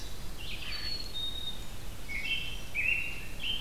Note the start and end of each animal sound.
[0.18, 3.60] Red-eyed Vireo (Vireo olivaceus)
[0.62, 1.79] Black-capped Chickadee (Poecile atricapillus)
[2.06, 3.60] American Robin (Turdus migratorius)

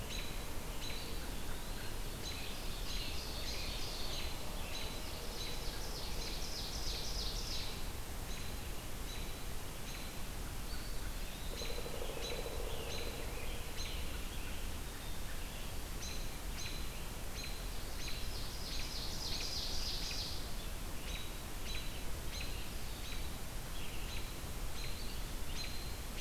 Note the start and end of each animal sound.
[0.00, 26.20] American Robin (Turdus migratorius)
[0.81, 2.32] Eastern Wood-Pewee (Contopus virens)
[1.99, 5.75] Scarlet Tanager (Piranga olivacea)
[2.21, 4.33] Ovenbird (Seiurus aurocapilla)
[5.02, 8.14] Ovenbird (Seiurus aurocapilla)
[10.56, 12.12] Eastern Wood-Pewee (Contopus virens)
[11.49, 13.20] Pileated Woodpecker (Dryocopus pileatus)
[11.82, 14.73] Scarlet Tanager (Piranga olivacea)
[14.83, 15.85] Black-capped Chickadee (Poecile atricapillus)
[18.11, 20.68] Ovenbird (Seiurus aurocapilla)

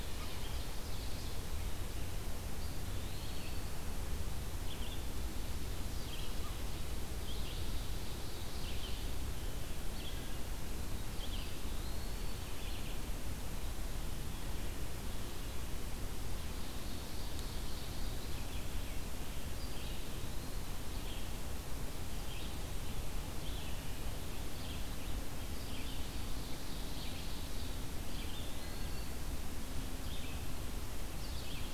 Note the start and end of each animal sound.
[0.00, 1.54] Ovenbird (Seiurus aurocapilla)
[0.00, 31.73] Red-eyed Vireo (Vireo olivaceus)
[2.50, 3.82] Eastern Wood-Pewee (Contopus virens)
[7.35, 9.32] Ovenbird (Seiurus aurocapilla)
[11.27, 12.47] Eastern Wood-Pewee (Contopus virens)
[16.46, 18.41] Ovenbird (Seiurus aurocapilla)
[19.57, 20.71] Eastern Wood-Pewee (Contopus virens)
[25.78, 27.93] Ovenbird (Seiurus aurocapilla)
[28.01, 29.18] Eastern Wood-Pewee (Contopus virens)

